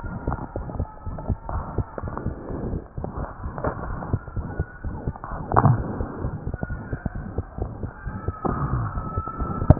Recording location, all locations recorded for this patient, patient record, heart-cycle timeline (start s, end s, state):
pulmonary valve (PV)
pulmonary valve (PV)+tricuspid valve (TV)+mitral valve (MV)
#Age: Child
#Sex: Male
#Height: 100.0 cm
#Weight: 16.7 kg
#Pregnancy status: False
#Murmur: Present
#Murmur locations: mitral valve (MV)+pulmonary valve (PV)+tricuspid valve (TV)
#Most audible location: mitral valve (MV)
#Systolic murmur timing: Holosystolic
#Systolic murmur shape: Plateau
#Systolic murmur grading: I/VI
#Systolic murmur pitch: Medium
#Systolic murmur quality: Blowing
#Diastolic murmur timing: nan
#Diastolic murmur shape: nan
#Diastolic murmur grading: nan
#Diastolic murmur pitch: nan
#Diastolic murmur quality: nan
#Outcome: Abnormal
#Campaign: 2015 screening campaign
0.00	1.03	unannotated
1.03	1.13	S1
1.13	1.26	systole
1.26	1.37	S2
1.37	1.51	diastole
1.51	1.61	S1
1.61	1.74	systole
1.74	1.85	S2
1.85	2.02	diastole
2.02	2.11	S1
2.11	2.22	systole
2.22	2.34	S2
2.34	2.49	diastole
2.49	2.60	S1
2.60	2.70	systole
2.70	2.82	S2
2.82	2.96	diastole
2.96	3.06	S1
3.06	3.15	systole
3.15	3.27	S2
3.27	3.41	diastole
3.41	3.53	S1
3.53	3.87	unannotated
3.87	3.96	S1
3.96	4.09	systole
4.09	4.19	S2
4.19	4.33	diastole
4.33	4.45	S1
4.45	4.56	systole
4.56	4.67	S2
4.67	4.81	diastole
4.81	4.92	S1
4.92	5.04	systole
5.04	5.15	S2
5.15	5.28	diastole
5.28	5.39	S1
5.39	9.79	unannotated